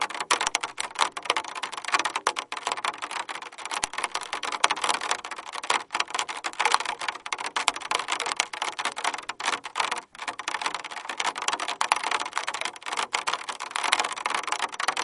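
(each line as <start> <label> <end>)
0.0 Rain pattering randomly on a plastic trash container lid. 15.0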